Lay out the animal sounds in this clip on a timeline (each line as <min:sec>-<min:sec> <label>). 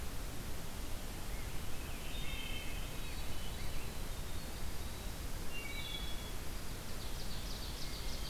0:01.9-0:03.0 Wood Thrush (Hylocichla mustelina)
0:02.7-0:04.0 Hermit Thrush (Catharus guttatus)
0:02.8-0:07.0 Winter Wren (Troglodytes hiemalis)
0:05.4-0:06.3 Wood Thrush (Hylocichla mustelina)
0:06.7-0:08.3 Ovenbird (Seiurus aurocapilla)